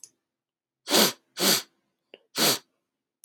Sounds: Sniff